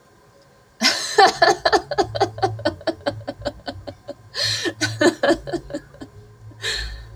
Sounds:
Laughter